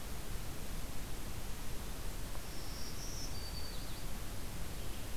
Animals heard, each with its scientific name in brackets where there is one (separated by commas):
Black-throated Green Warbler (Setophaga virens)